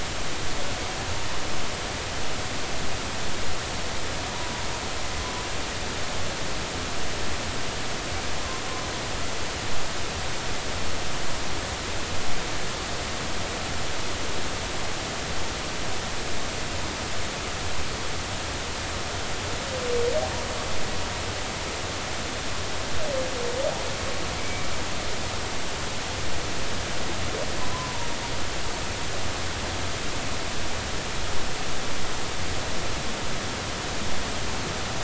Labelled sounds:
24.4	24.7	humpback whale, 2.2 to 2.4 kHz
27.6	28.1	humpback whale, 0.90 to 1.1 kHz

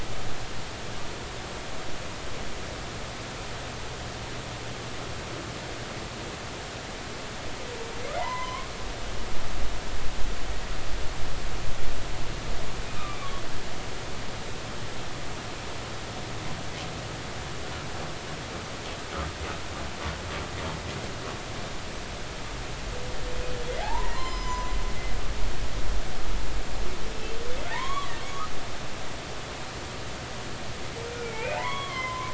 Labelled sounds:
8.1	8.7	humpback whale, 0.86 to 2.2 kHz
13.0	13.2	humpback whale, 1.1 to 1.3 kHz
23.8	24.7	humpback whale, 0.80 to 6.1 kHz
27.7	28.1	humpback whale, 0.83 to 3.5 kHz
31.1	32.3	humpback whale, 0.80 to 3.4 kHz

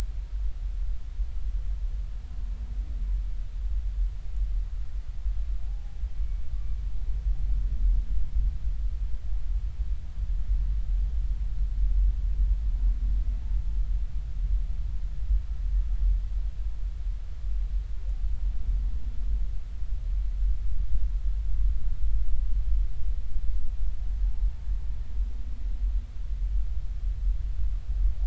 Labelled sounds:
5.7	6.4	humpback whale, 0.80 to 2.3 kHz

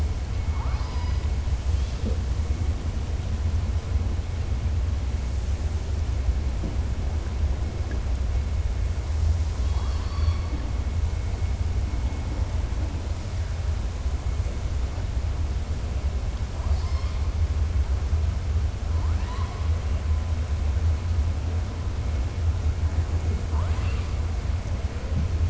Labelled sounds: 9.5	10.6	killer whale, southern resident, 0.81 to 5.7 kHz
18.9	19.6	killer whale, southern resident, 0.51 to 4.4 kHz
23.4	24.1	killer whale, southern resident, 0.68 to 4.8 kHz

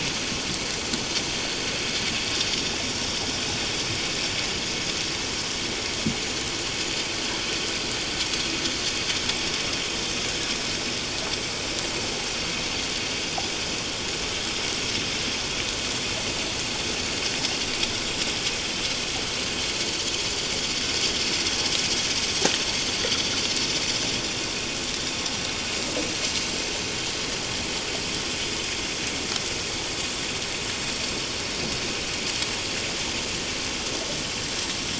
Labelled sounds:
26.1	26.3	vessel noise, 6.1 to 6.2 kHz

